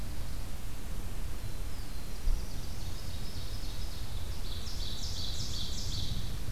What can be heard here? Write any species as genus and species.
Setophaga caerulescens, Seiurus aurocapilla